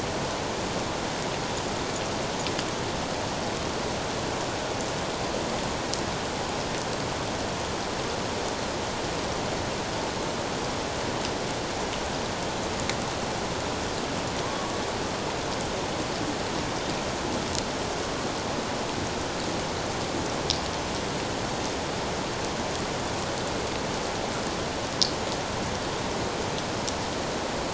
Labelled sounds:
14.4	14.7	killer whale, 0.94 to 1.2 kHz

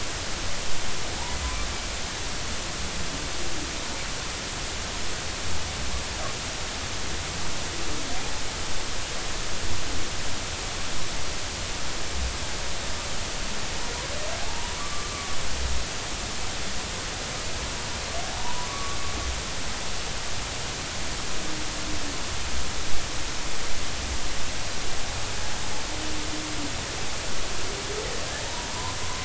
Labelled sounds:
14.4	15.4	humpback whale, 0.80 to 1.2 kHz
18.3	19.0	humpback whale, 0.80 to 1.2 kHz
28.7	29.0	humpback whale, 0.86 to 1.1 kHz

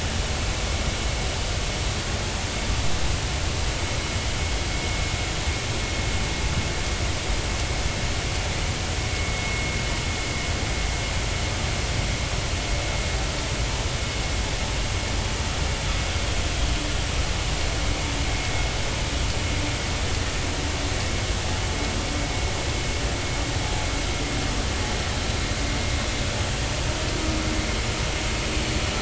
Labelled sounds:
9.1	9.7	vessel noise, 2.1 to 2.2 kHz

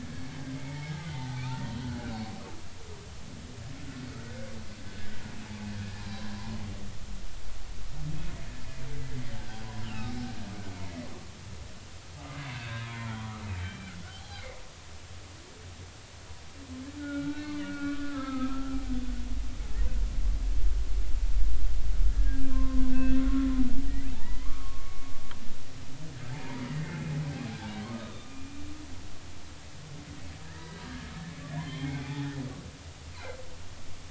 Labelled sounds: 0.5	1.5	humpback whale, 0.80 to 2.3 kHz
2.3	2.6	humpback whale, 2.3 to 2.6 kHz
4.3	4.5	humpback whale, 1.4 to 1.8 kHz
5.7	6.3	humpback whale, 0.80 to 1.8 kHz
9.8	10.1	humpback whale, 2.5 to 3.3 kHz
10.7	11.1	humpback whale, 1.9 to 2.3 kHz
12.5	13.9	humpback whale, 0.96 to 3.8 kHz
14.2	14.5	humpback whale, 0.80 to 4.2 kHz
17.0	18.8	humpback whale, 0.99 to 4.4 kHz
22.1	23.5	humpback whale, 0.99 to 2.7 kHz
24.1	25.1	humpback whale, 0.83 to 2.2 kHz
26.3	27.0	humpback whale, 0.80 to 2.2 kHz
27.8	28.6	humpback whale, 0.99 to 3.6 kHz
30.4	32.4	humpback whale, 0.80 to 3.3 kHz

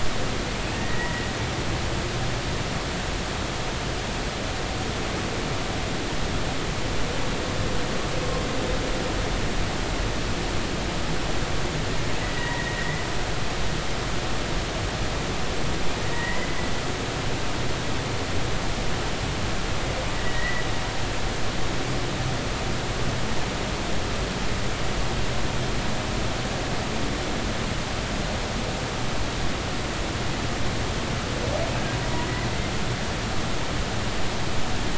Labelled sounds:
0.8	1.3	humpback whale, 1.8 to 2.0 kHz
12.2	13.0	humpback whale, 1.8 to 2.0 kHz
16.1	16.5	humpback whale, 1.8 to 2.1 kHz
20.1	20.6	humpback whale, 1.7 to 2.0 kHz

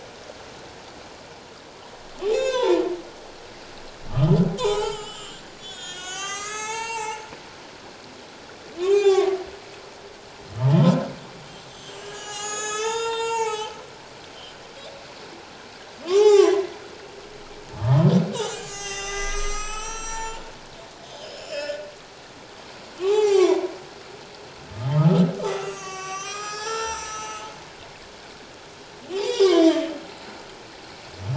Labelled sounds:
0.0	0.4	humpback whale, 6.4 to 6.8 kHz
2.2	2.8	humpback whale, 0.84 to 7.0 kHz
4.1	7.2	humpback whale, 0.78 to 8.0 kHz
8.8	9.3	humpback whale, 0.78 to 7.3 kHz
11.7	13.8	humpback whale, 0.78 to 8.0 kHz
16.1	16.7	humpback whale, 0.78 to 6.0 kHz
17.8	20.4	humpback whale, 0.81 to 8.0 kHz
21.0	21.9	humpback whale, 1.4 to 7.2 kHz
23.0	23.7	humpback whale, 0.78 to 7.5 kHz
24.8	27.5	humpback whale, 0.81 to 7.9 kHz
29.1	30.4	humpback whale, 0.78 to 7.5 kHz

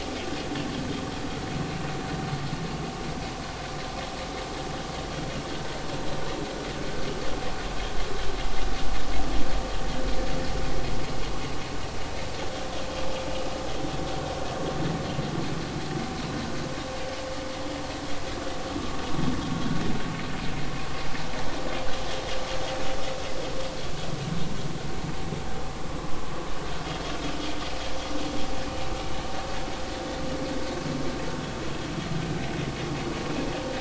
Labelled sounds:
29.9	30.2	vessel noise, 3.4 to 3.5 kHz

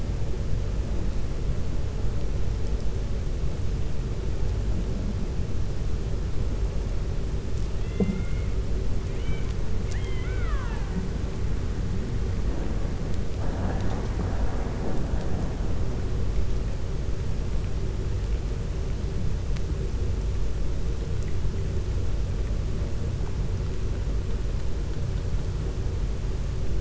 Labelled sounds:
9.8	11.0	killer whale, 0.89 to 3.8 kHz

